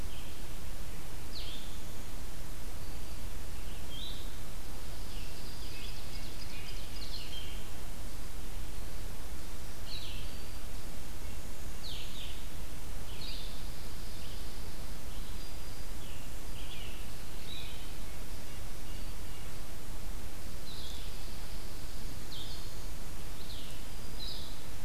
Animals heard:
Blue-headed Vireo (Vireo solitarius), Ovenbird (Seiurus aurocapilla), Black-throated Green Warbler (Setophaga virens), Red-breasted Nuthatch (Sitta canadensis), Red-eyed Vireo (Vireo olivaceus)

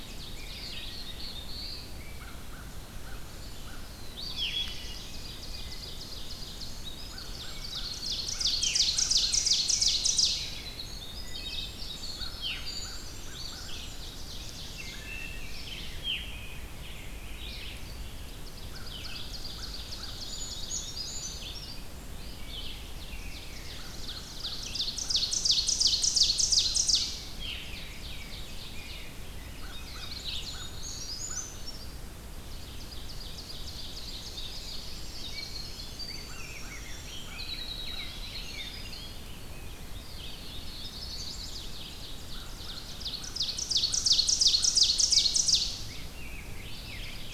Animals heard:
Rose-breasted Grosbeak (Pheucticus ludovicianus), Blue-headed Vireo (Vireo solitarius), Brown Creeper (Certhia americana), Wood Thrush (Hylocichla mustelina), American Crow (Corvus brachyrhynchos), Winter Wren (Troglodytes hiemalis), Chestnut-sided Warbler (Setophaga pensylvanica), Ovenbird (Seiurus aurocapilla), Black-throated Blue Warbler (Setophaga caerulescens), Red-eyed Vireo (Vireo olivaceus)

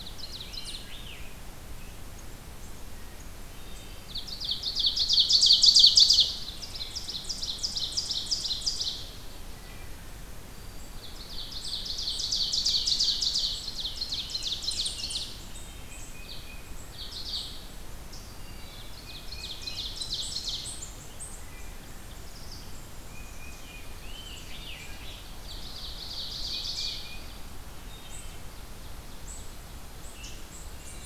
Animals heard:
unknown mammal, Tufted Titmouse (Baeolophus bicolor), Ovenbird (Seiurus aurocapilla), Wood Thrush (Hylocichla mustelina), Black-throated Green Warbler (Setophaga virens), Scarlet Tanager (Piranga olivacea)

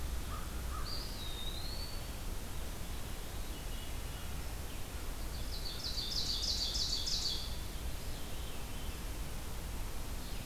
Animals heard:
Veery (Catharus fuscescens), Eastern Wood-Pewee (Contopus virens), American Crow (Corvus brachyrhynchos), Ovenbird (Seiurus aurocapilla)

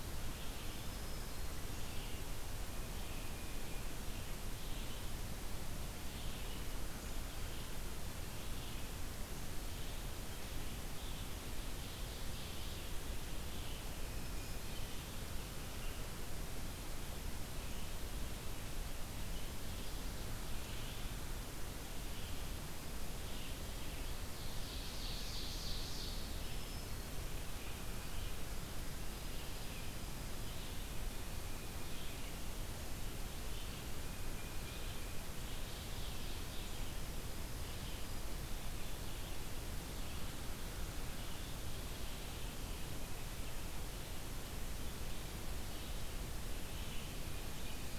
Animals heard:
Tufted Titmouse (Baeolophus bicolor), Black-throated Green Warbler (Setophaga virens), Red-eyed Vireo (Vireo olivaceus), Ovenbird (Seiurus aurocapilla)

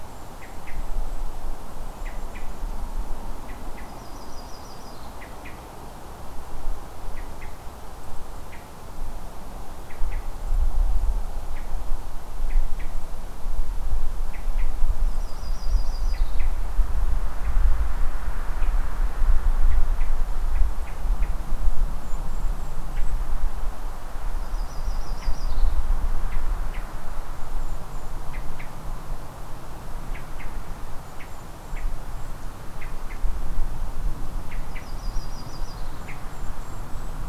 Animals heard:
Hermit Thrush (Catharus guttatus), Yellow-rumped Warbler (Setophaga coronata), Golden-crowned Kinglet (Regulus satrapa)

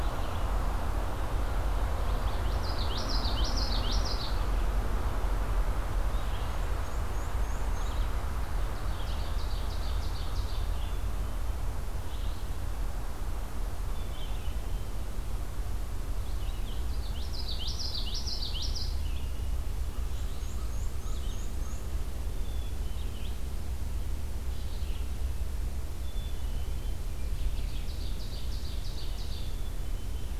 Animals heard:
Red-eyed Vireo (Vireo olivaceus), Ovenbird (Seiurus aurocapilla), Black-capped Chickadee (Poecile atricapillus), Black-and-white Warbler (Mniotilta varia), Common Yellowthroat (Geothlypis trichas)

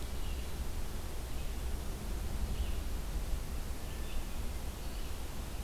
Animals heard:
Wood Thrush (Hylocichla mustelina), Red-eyed Vireo (Vireo olivaceus)

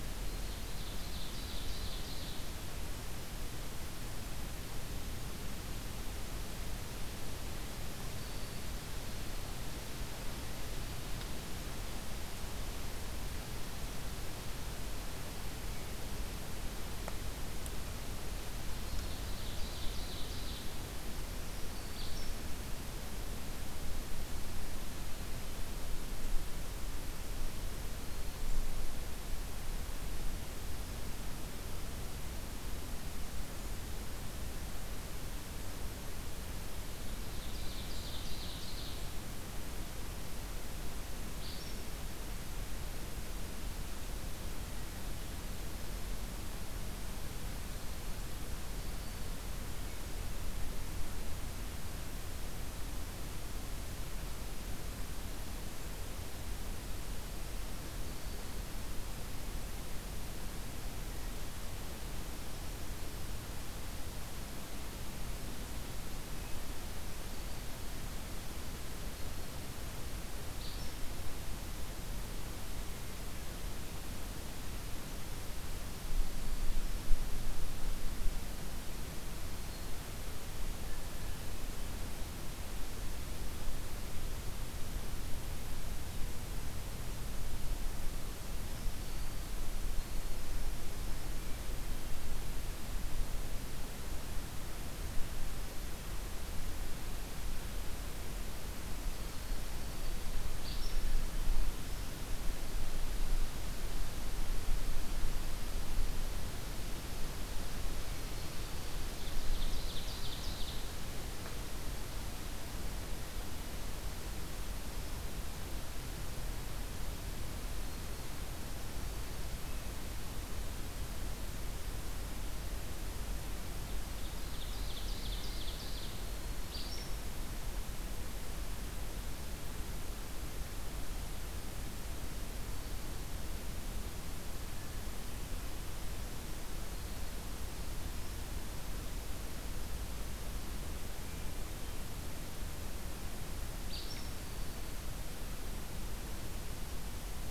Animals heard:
Ovenbird (Seiurus aurocapilla), Black-throated Green Warbler (Setophaga virens), Acadian Flycatcher (Empidonax virescens)

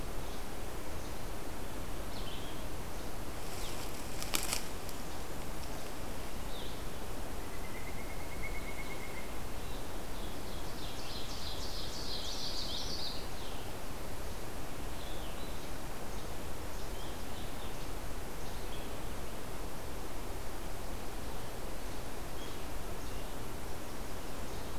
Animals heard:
Common Yellowthroat (Geothlypis trichas), Ovenbird (Seiurus aurocapilla), Red-eyed Vireo (Vireo olivaceus), Northern Flicker (Colaptes auratus)

